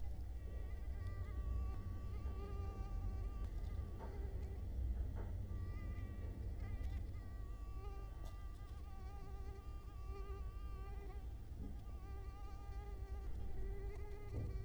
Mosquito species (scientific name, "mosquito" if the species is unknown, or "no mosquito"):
Culex quinquefasciatus